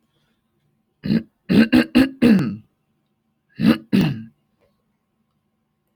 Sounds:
Throat clearing